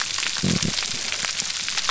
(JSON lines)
{"label": "biophony", "recorder": "SoundTrap 300"}